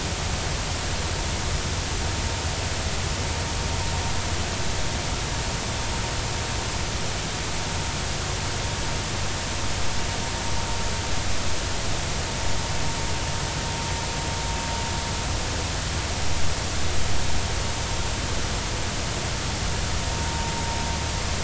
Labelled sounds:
20.2	20.5	vessel noise, 0.90 to 0.96 kHz

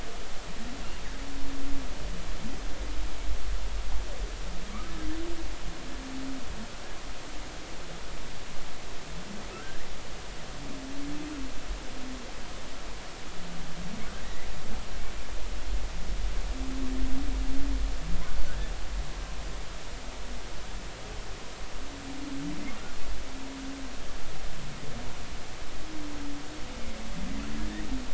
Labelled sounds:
9.5	9.8	humpback whale, 1.2 to 1.7 kHz
14.2	14.5	humpback whale, 1.8 to 2.1 kHz
18.5	18.7	humpback whale, 1.4 to 1.8 kHz
27.5	27.9	humpback whale, 1.6 to 2.0 kHz

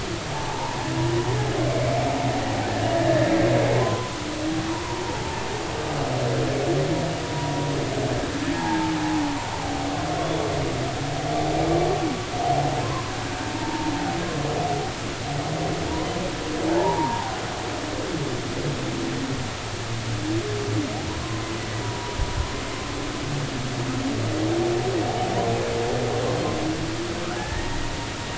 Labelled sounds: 0.3	0.8	humpback whale, 0.80 to 1.1 kHz
1.7	1.9	humpback whale, 2.1 to 2.4 kHz
3.0	4.1	humpback whale, 0.96 to 1.9 kHz
4.7	5.4	humpback whale, 0.83 to 1.1 kHz
7.2	7.5	humpback whale, 0.93 to 0.99 kHz
8.6	8.9	humpback whale, 0.80 to 1.0 kHz
12.8	13.9	humpback whale, 0.86 to 1.2 kHz
16.7	17.4	humpback whale, 0.80 to 1.1 kHz
21.8	22.2	humpback whale, 0.90 to 0.99 kHz
27.3	27.9	humpback whale, 0.80 to 2.0 kHz

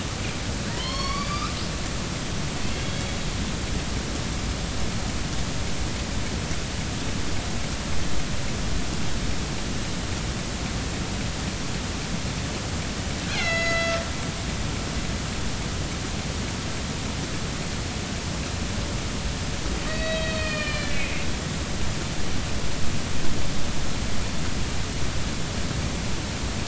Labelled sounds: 0.7	1.5	killer whale, northern resident, A clan, AB subclan, call N16, 0.90 to 5.6 kHz
13.3	14.0	killer whale, northern resident, A clan, AB subclan, B01 pod, call N01ii, 1.3 to 6.8 kHz
19.9	21.1	killer whale, northern resident, A clan, AB subclan, B01 pod, call N18, 1.7 to 4.6 kHz

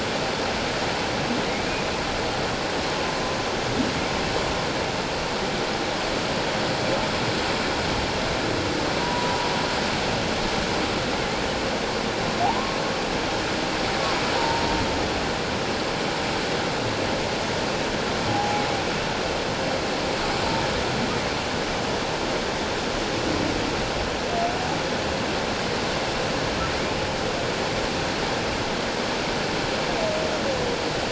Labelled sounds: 9.0	9.5	humpback whale, 0.91 to 1.0 kHz
12.4	12.8	humpback whale, 0.78 to 1.1 kHz
14.4	14.6	humpback whale, 0.88 to 0.97 kHz
18.3	18.6	humpback whale, 0.78 to 0.88 kHz

